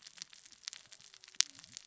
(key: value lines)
label: biophony, cascading saw
recorder: SoundTrap 600 or HydroMoth